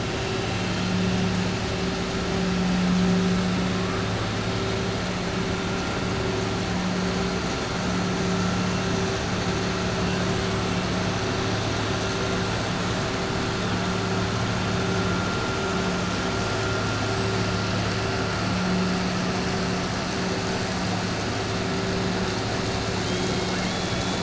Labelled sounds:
23.0	24.2	killer whale, 1.5 to 4.4 kHz

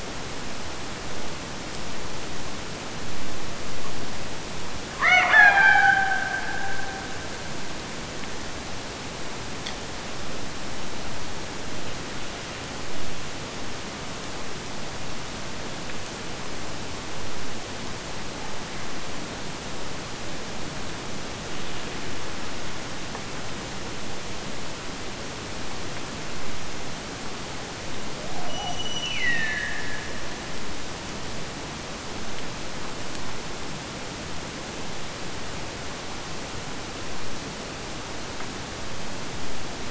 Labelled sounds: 4.9	8.1	killer whale, Bigg's (transient), Gulf of Alaska transient, 0.51 to 6.1 kHz
28.2	30.6	killer whale, Bigg's (transient), Gulf of Alaska transient, 0.48 to 6.1 kHz

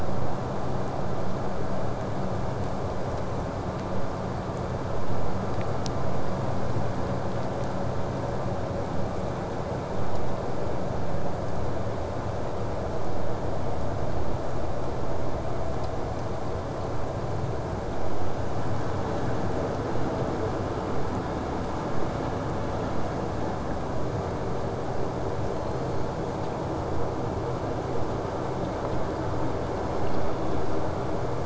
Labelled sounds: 25.5	26.5	killer whale, southern resident, J pod, call S01, 2.4 to 5.1 kHz
29.8	30.7	killer whale, southern resident, J pod, call S01, 2.0 to 5.1 kHz

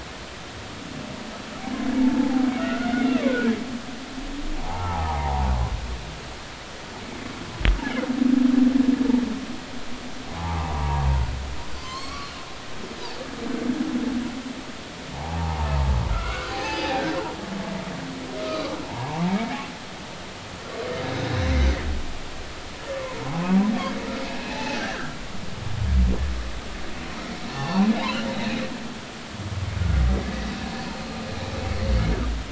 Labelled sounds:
2.6	3.5	humpback whale, 0.80 to 2.2 kHz
4.6	5.5	humpback whale, 0.80 to 1.3 kHz
10.3	11.0	humpback whale, 0.80 to 1.2 kHz
11.8	12.3	humpback whale, 0.99 to 6.6 kHz
15.1	15.7	humpback whale, 0.80 to 0.99 kHz
16.1	17.0	humpback whale, 0.80 to 6.5 kHz
18.4	19.2	humpback whale, 0.80 to 1.3 kHz
22.9	23.2	humpback whale, 0.93 to 1.2 kHz
24.4	25.2	humpback whale, 0.80 to 2.7 kHz
27.5	27.9	humpback whale, 0.80 to 2.8 kHz

